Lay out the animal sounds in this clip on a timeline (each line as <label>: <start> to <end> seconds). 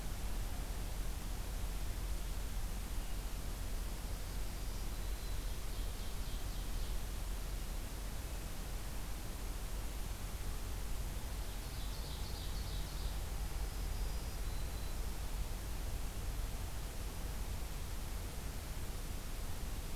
Black-throated Green Warbler (Setophaga virens): 4.3 to 5.5 seconds
Ovenbird (Seiurus aurocapilla): 5.2 to 7.1 seconds
Ovenbird (Seiurus aurocapilla): 11.6 to 13.3 seconds
Black-throated Green Warbler (Setophaga virens): 13.5 to 15.1 seconds